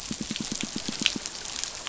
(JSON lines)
{"label": "biophony, pulse", "recorder": "SoundTrap 500"}